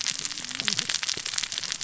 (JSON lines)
{"label": "biophony, cascading saw", "recorder": "SoundTrap 600 or HydroMoth"}